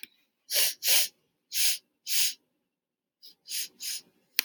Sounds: Sniff